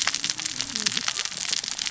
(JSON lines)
{"label": "biophony, cascading saw", "recorder": "SoundTrap 600 or HydroMoth"}